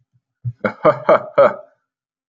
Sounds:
Laughter